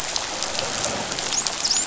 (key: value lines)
label: biophony, dolphin
recorder: SoundTrap 500